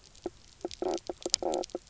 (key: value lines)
label: biophony, knock croak
recorder: SoundTrap 300